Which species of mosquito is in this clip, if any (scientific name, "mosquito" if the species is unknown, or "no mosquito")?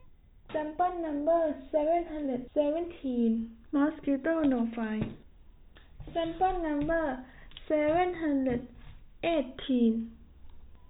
no mosquito